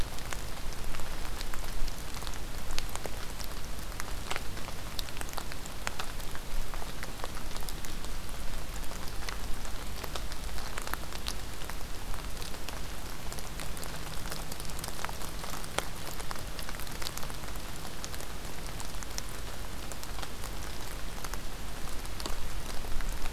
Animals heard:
forest ambience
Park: Acadia National Park